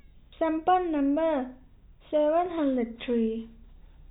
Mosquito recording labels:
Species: no mosquito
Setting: cup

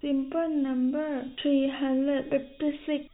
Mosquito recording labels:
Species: no mosquito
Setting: cup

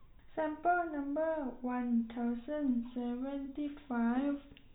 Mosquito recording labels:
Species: no mosquito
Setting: cup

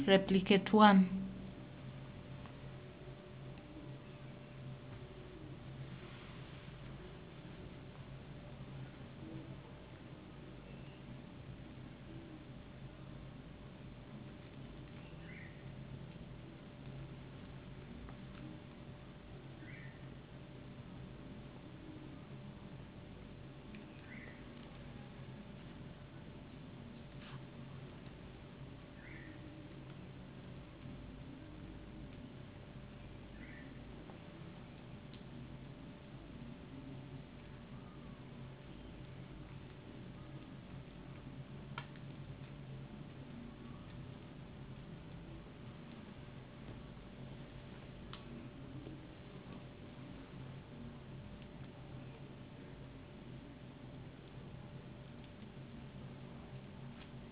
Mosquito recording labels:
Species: no mosquito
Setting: insect culture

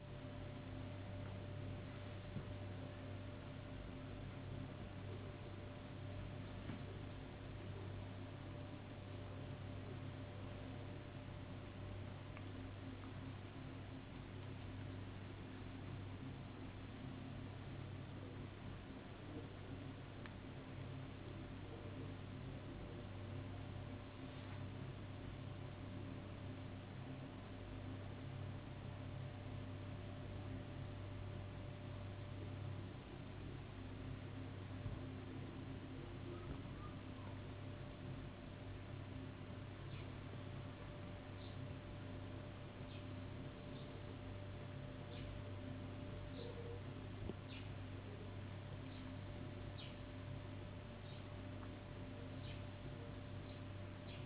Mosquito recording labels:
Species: no mosquito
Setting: insect culture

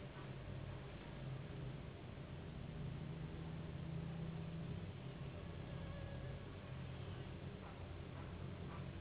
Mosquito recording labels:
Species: Anopheles gambiae s.s.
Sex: female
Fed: unfed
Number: one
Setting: insect culture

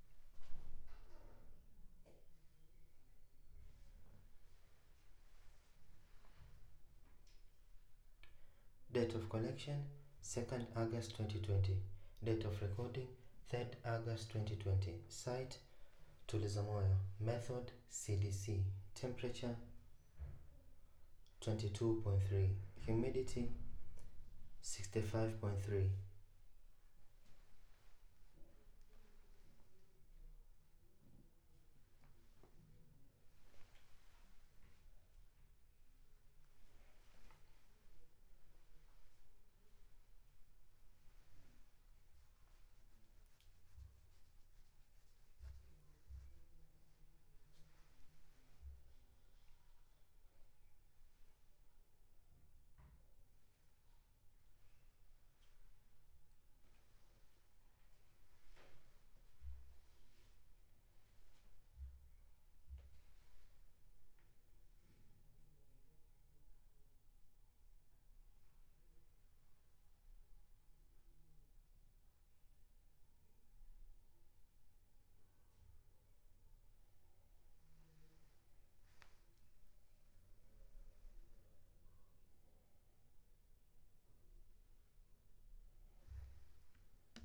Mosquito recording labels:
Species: no mosquito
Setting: cup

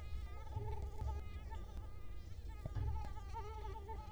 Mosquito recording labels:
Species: Culex quinquefasciatus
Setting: cup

